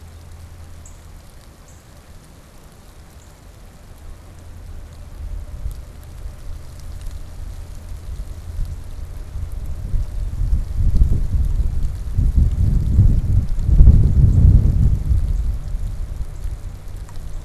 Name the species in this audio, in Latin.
Cardinalis cardinalis